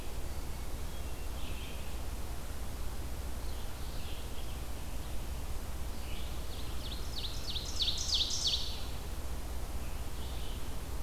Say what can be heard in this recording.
Red-eyed Vireo, Hermit Thrush, Scarlet Tanager, Ovenbird